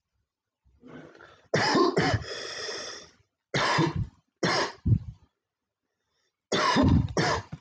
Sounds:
Cough